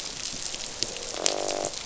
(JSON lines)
{"label": "biophony, croak", "recorder": "SoundTrap 500"}